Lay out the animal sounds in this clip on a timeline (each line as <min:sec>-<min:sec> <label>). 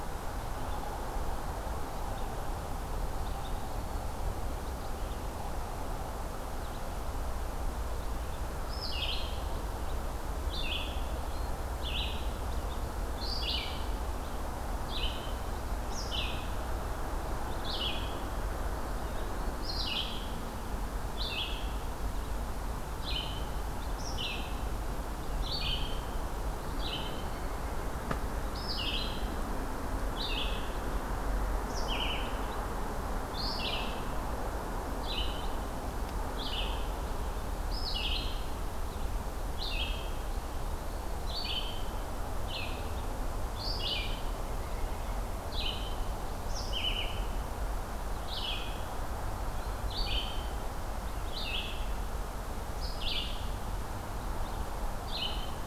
0:03.2-0:04.3 Eastern Wood-Pewee (Contopus virens)
0:08.5-0:55.7 Red-eyed Vireo (Vireo olivaceus)